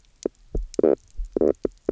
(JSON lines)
{"label": "biophony, knock croak", "recorder": "SoundTrap 300"}